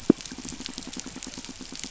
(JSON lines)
{"label": "biophony, pulse", "recorder": "SoundTrap 500"}